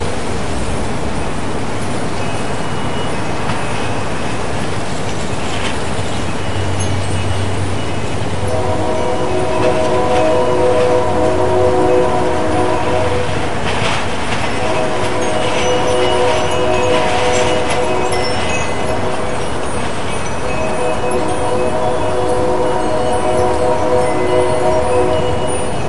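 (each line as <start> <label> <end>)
0.0 Wind gusts blow with metallic bells and sacred singing in the background. 25.9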